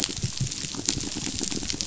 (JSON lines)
{"label": "biophony, rattle response", "recorder": "SoundTrap 500"}